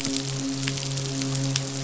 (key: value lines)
label: biophony, midshipman
recorder: SoundTrap 500